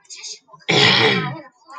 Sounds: Throat clearing